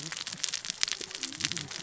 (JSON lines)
{"label": "biophony, cascading saw", "recorder": "SoundTrap 600 or HydroMoth"}